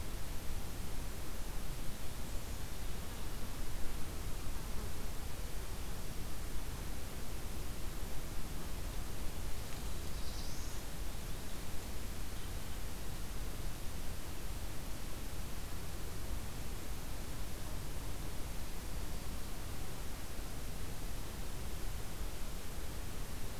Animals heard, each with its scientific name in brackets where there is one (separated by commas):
Black-throated Blue Warbler (Setophaga caerulescens)